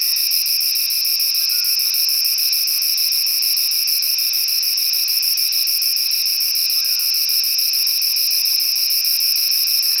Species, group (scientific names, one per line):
Myopsalta mackinlayi
Cicadidae